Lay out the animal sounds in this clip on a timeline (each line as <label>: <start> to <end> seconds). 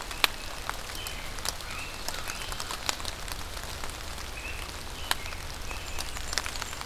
American Robin (Turdus migratorius): 0.0 to 2.6 seconds
American Crow (Corvus brachyrhynchos): 1.2 to 2.9 seconds
American Robin (Turdus migratorius): 4.3 to 6.2 seconds
Blackburnian Warbler (Setophaga fusca): 5.7 to 6.9 seconds